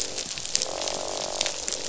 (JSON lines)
{"label": "biophony, croak", "recorder": "SoundTrap 500"}